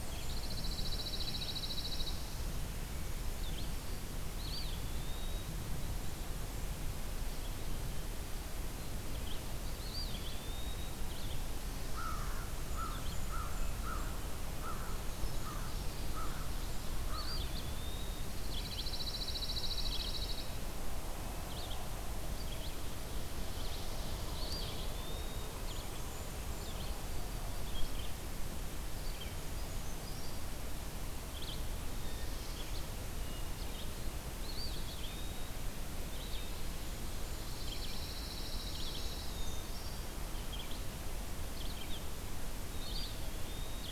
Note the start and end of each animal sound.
0.0s-1.0s: Blackburnian Warbler (Setophaga fusca)
0.0s-2.3s: Pine Warbler (Setophaga pinus)
0.0s-28.3s: Red-eyed Vireo (Vireo olivaceus)
4.2s-5.8s: Eastern Wood-Pewee (Contopus virens)
9.6s-11.2s: Eastern Wood-Pewee (Contopus virens)
11.8s-17.8s: American Crow (Corvus brachyrhynchos)
12.2s-13.8s: Blackburnian Warbler (Setophaga fusca)
14.8s-16.1s: Brown Creeper (Certhia americana)
17.0s-18.5s: Eastern Wood-Pewee (Contopus virens)
18.1s-20.6s: Pine Warbler (Setophaga pinus)
22.8s-24.6s: Ovenbird (Seiurus aurocapilla)
24.1s-25.7s: Eastern Wood-Pewee (Contopus virens)
25.5s-26.9s: Blackburnian Warbler (Setophaga fusca)
28.8s-43.9s: Red-eyed Vireo (Vireo olivaceus)
29.4s-30.5s: Brown Creeper (Certhia americana)
33.1s-34.1s: Hermit Thrush (Catharus guttatus)
34.2s-35.7s: Eastern Wood-Pewee (Contopus virens)
37.2s-39.3s: Pine Warbler (Setophaga pinus)
38.7s-40.2s: Brown Creeper (Certhia americana)
39.2s-40.3s: Hermit Thrush (Catharus guttatus)
42.5s-43.9s: Eastern Wood-Pewee (Contopus virens)

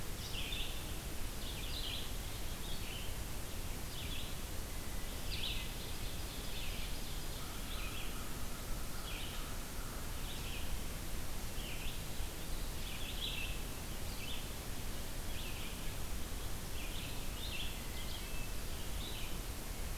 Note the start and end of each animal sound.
0.0s-19.5s: Red-eyed Vireo (Vireo olivaceus)
5.5s-8.2s: Ovenbird (Seiurus aurocapilla)
7.3s-10.3s: American Crow (Corvus brachyrhynchos)

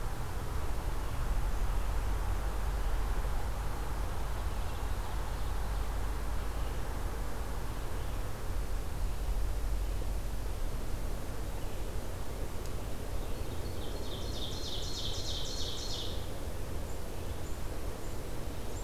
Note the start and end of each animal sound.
4.1s-6.0s: Ovenbird (Seiurus aurocapilla)
13.4s-16.3s: Ovenbird (Seiurus aurocapilla)

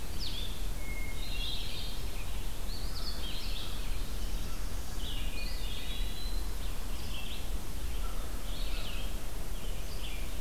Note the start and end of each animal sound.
0.0s-5.8s: Red-eyed Vireo (Vireo olivaceus)
0.8s-2.2s: Hermit Thrush (Catharus guttatus)
2.6s-3.8s: Eastern Wood-Pewee (Contopus virens)
3.6s-5.1s: Black-throated Blue Warbler (Setophaga caerulescens)
5.1s-6.1s: Hermit Thrush (Catharus guttatus)
5.2s-6.5s: Eastern Wood-Pewee (Contopus virens)
6.2s-10.4s: Red-eyed Vireo (Vireo olivaceus)
7.9s-9.0s: American Crow (Corvus brachyrhynchos)

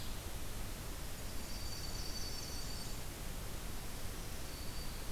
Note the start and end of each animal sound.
1.1s-3.0s: Blackburnian Warbler (Setophaga fusca)
1.3s-3.1s: Dark-eyed Junco (Junco hyemalis)
3.9s-5.1s: Black-throated Green Warbler (Setophaga virens)

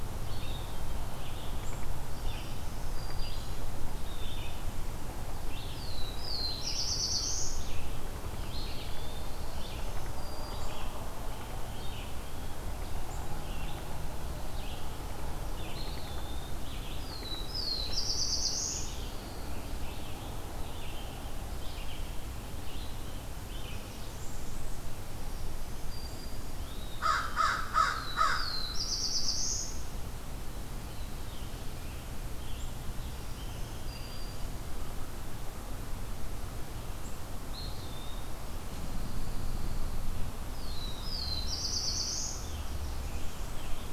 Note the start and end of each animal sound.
0.0s-24.1s: Red-eyed Vireo (Vireo olivaceus)
2.0s-3.9s: Black-throated Green Warbler (Setophaga virens)
5.6s-7.9s: Black-throated Blue Warbler (Setophaga caerulescens)
8.1s-9.7s: Pine Warbler (Setophaga pinus)
8.3s-9.6s: Eastern Wood-Pewee (Contopus virens)
9.2s-10.9s: Black-throated Green Warbler (Setophaga virens)
15.6s-16.6s: Eastern Wood-Pewee (Contopus virens)
16.9s-19.1s: Black-throated Blue Warbler (Setophaga caerulescens)
18.4s-19.7s: Pine Warbler (Setophaga pinus)
23.5s-25.0s: Blackburnian Warbler (Setophaga fusca)
25.2s-26.7s: Black-throated Green Warbler (Setophaga virens)
26.6s-27.4s: Eastern Wood-Pewee (Contopus virens)
26.9s-28.8s: American Crow (Corvus brachyrhynchos)
27.7s-30.1s: Black-throated Blue Warbler (Setophaga caerulescens)
30.8s-34.6s: Scarlet Tanager (Piranga olivacea)
33.0s-34.6s: Black-throated Green Warbler (Setophaga virens)
37.3s-38.4s: Eastern Wood-Pewee (Contopus virens)
38.6s-40.1s: Pine Warbler (Setophaga pinus)
40.2s-43.8s: Black-throated Blue Warbler (Setophaga caerulescens)

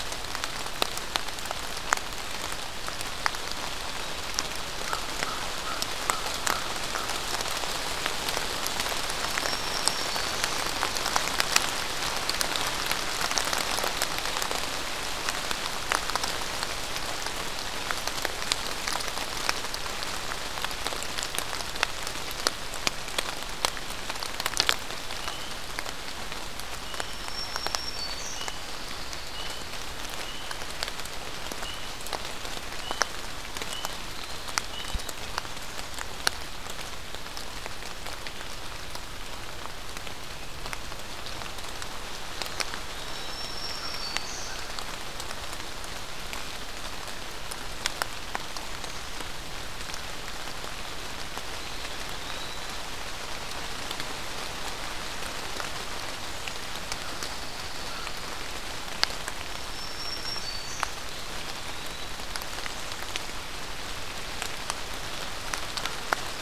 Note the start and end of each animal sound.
4.8s-7.1s: American Crow (Corvus brachyrhynchos)
9.2s-10.6s: Black-throated Green Warbler (Setophaga virens)
25.1s-35.1s: unidentified call
26.8s-28.4s: Black-throated Green Warbler (Setophaga virens)
28.4s-29.6s: Pine Warbler (Setophaga pinus)
34.0s-35.2s: Eastern Wood-Pewee (Contopus virens)
43.0s-44.5s: Black-throated Green Warbler (Setophaga virens)
51.4s-52.8s: Eastern Wood-Pewee (Contopus virens)
56.9s-58.2s: Pine Warbler (Setophaga pinus)
59.3s-60.9s: Black-throated Green Warbler (Setophaga virens)

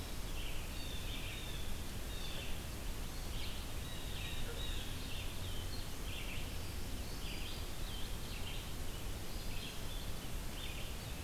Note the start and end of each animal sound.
0.0s-11.2s: Blue-headed Vireo (Vireo solitarius)
0.0s-11.2s: Red-eyed Vireo (Vireo olivaceus)
0.4s-2.5s: Blue Jay (Cyanocitta cristata)
3.5s-5.0s: Blue Jay (Cyanocitta cristata)
6.4s-7.7s: Black-throated Green Warbler (Setophaga virens)

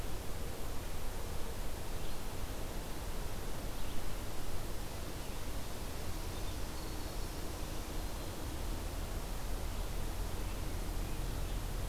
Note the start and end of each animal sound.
0.0s-4.1s: Red-eyed Vireo (Vireo olivaceus)
6.3s-7.2s: Black-throated Green Warbler (Setophaga virens)
7.4s-8.4s: Black-throated Green Warbler (Setophaga virens)

